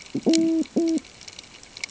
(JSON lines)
{"label": "ambient", "recorder": "HydroMoth"}